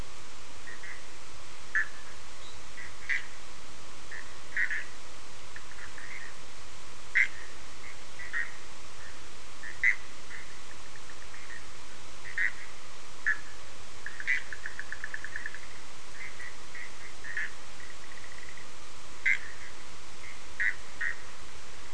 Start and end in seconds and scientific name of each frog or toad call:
0.0	21.3	Boana bischoffi